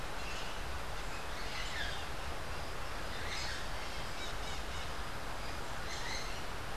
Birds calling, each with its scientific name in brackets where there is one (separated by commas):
Crimson-fronted Parakeet (Psittacara finschi)